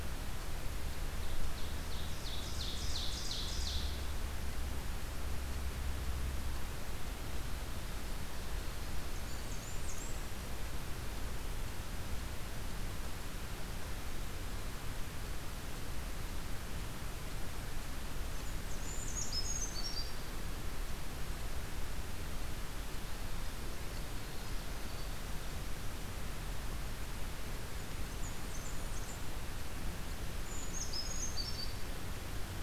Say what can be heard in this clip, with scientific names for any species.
Seiurus aurocapilla, Setophaga fusca, Certhia americana